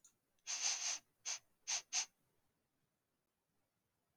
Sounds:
Sniff